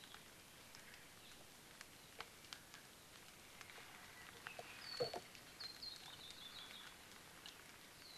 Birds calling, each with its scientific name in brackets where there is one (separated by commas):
Hawaii Creeper (Loxops mana), Apapane (Himatione sanguinea)